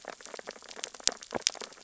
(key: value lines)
label: biophony, sea urchins (Echinidae)
recorder: SoundTrap 600 or HydroMoth